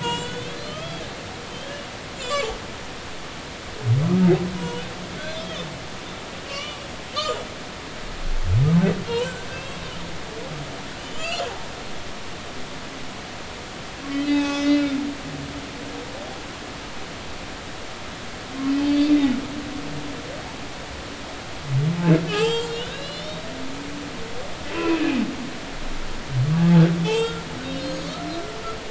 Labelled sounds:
0.0	1.9	humpback whale, 0.90 to 7.9 kHz
2.2	2.5	humpback whale, 3.3 to 7.7 kHz
4.5	5.7	humpback whale, 0.90 to 3.6 kHz
6.5	6.8	humpback whale, 1.1 to 3.0 kHz
9.1	10.0	humpback whale, 0.99 to 3.3 kHz
11.0	11.4	humpback whale, 2.5 to 3.3 kHz
14.1	15.0	humpback whale, 0.80 to 6.4 kHz
18.8	19.2	humpback whale, 3.4 to 4.8 kHz
22.3	23.5	humpback whale, 0.80 to 7.6 kHz
24.7	25.2	humpback whale, 0.96 to 2.8 kHz
27.0	28.4	humpback whale, 0.83 to 6.8 kHz

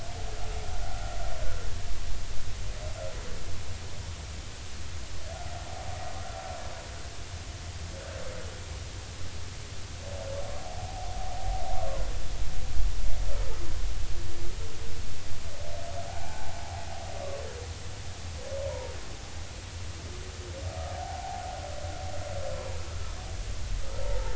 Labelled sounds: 10.6	11.1	humpback whale, 0.80 to 0.86 kHz
16.1	16.6	humpback whale, 0.80 to 0.93 kHz
18.7	18.9	humpback whale, 0.90 to 1.1 kHz
20.9	21.4	humpback whale, 0.80 to 0.93 kHz
22.5	22.8	humpback whale, 0.93 to 1.1 kHz
24.0	24.3	humpback whale, 0.83 to 0.96 kHz

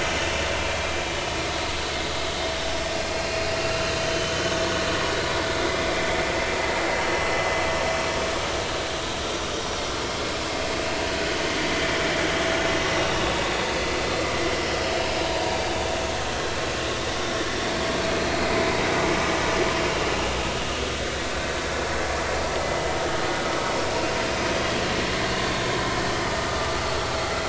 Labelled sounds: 3.1	3.6	vessel noise, 2.4 to 2.8 kHz
9.5	9.8	vessel noise, 5.6 to 5.9 kHz
12.8	13.1	vessel noise, 5.6 to 5.8 kHz
24.4	24.6	vessel noise, 5.9 to 6.1 kHz
25.3	25.6	vessel noise, 3.4 to 3.6 kHz

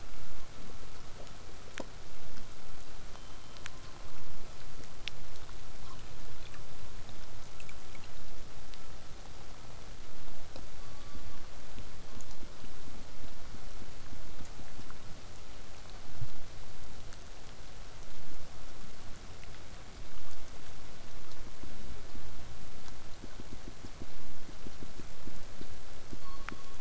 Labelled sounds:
3.1	4.2	killer whale, southern resident, call S17, 2.9 to 4.5 kHz
5.0	10.0	vessel noise, 0 to 8.0 kHz
10.7	11.4	killer whale, southern resident, call S16, 1.0 to 5.9 kHz

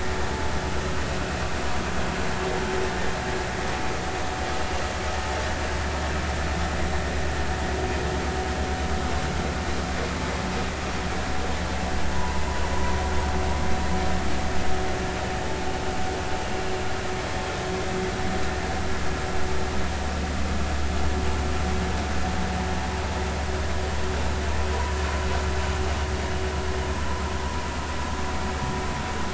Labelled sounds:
12.1	13.0	vessel noise, 0.86 to 1.1 kHz

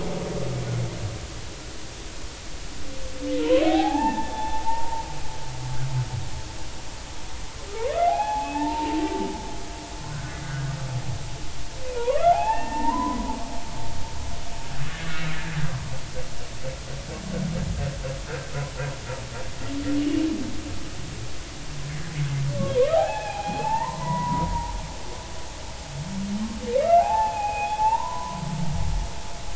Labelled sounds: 3.4	5.0	humpback whale, 0.80 to 3.6 kHz
8.1	9.0	humpback whale, 0.80 to 2.7 kHz
10.1	10.7	humpback whale, 1.3 to 1.7 kHz
12.0	13.4	humpback whale, 0.80 to 2.8 kHz
14.9	15.1	humpback whale, 1.6 to 1.8 kHz
20.0	20.2	humpback whale, 2.8 to 3.0 kHz
22.8	24.8	humpback whale, 0.80 to 2.8 kHz
26.8	28.4	humpback whale, 0.80 to 2.8 kHz

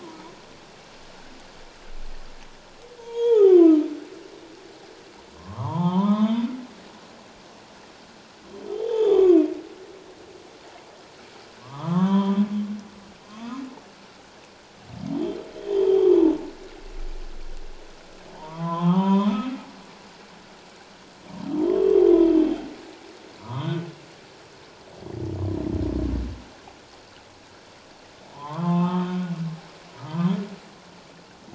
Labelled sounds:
3.0	3.8	humpback whale, 0.78 to 3.4 kHz
5.4	6.5	humpback whale, 0.81 to 3.8 kHz
8.7	9.4	humpback whale, 0.78 to 3.7 kHz
11.6	12.4	humpback whale, 0.84 to 3.7 kHz
13.3	13.6	humpback whale, 1.0 to 1.3 kHz
15.1	16.1	humpback whale, 1.8 to 3.6 kHz
18.3	19.5	humpback whale, 0.78 to 3.7 kHz
21.6	22.0	humpback whale, 0.91 to 1.2 kHz
23.4	23.8	humpback whale, 0.91 to 3.8 kHz
28.3	29.1	humpback whale, 0.78 to 3.4 kHz

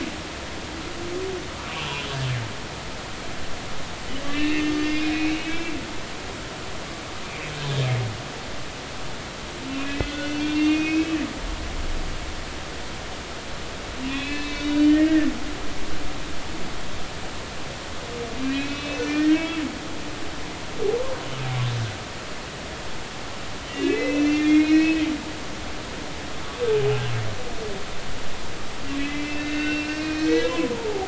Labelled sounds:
4.3	5.8	humpback whale, 1.7 to 3.4 kHz
9.8	11.2	humpback whale, 1.4 to 3.7 kHz
14.1	15.3	humpback whale, 1.7 to 4.4 kHz
18.4	19.6	humpback whale, 1.5 to 6.0 kHz
23.8	25.1	humpback whale, 1.5 to 6.0 kHz
26.8	27.1	humpback whale, 0.80 to 0.90 kHz
29.0	31.0	humpback whale, 0.80 to 5.2 kHz

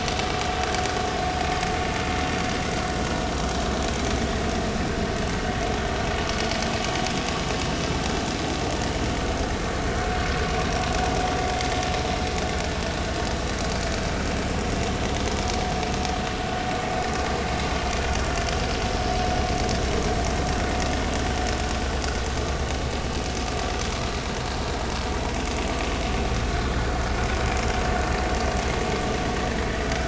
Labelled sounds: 26.4	26.7	vessel noise, 3.9 to 4.2 kHz

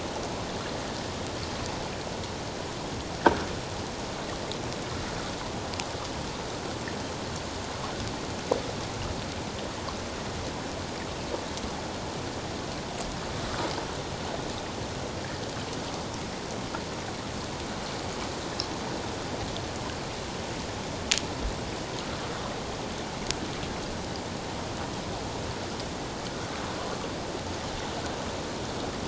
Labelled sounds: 26.3	26.6	Pacific white-sided dolphin, 1.4 to 1.6 kHz

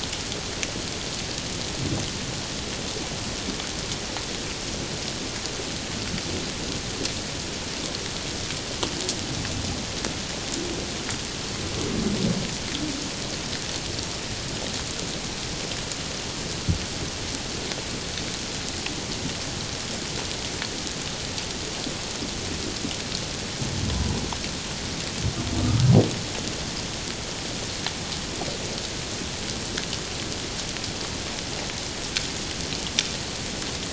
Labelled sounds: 23.9	24.2	humpback whale, 0.84 to 1.0 kHz
25.6	25.8	humpback whale, 1.2 to 1.3 kHz

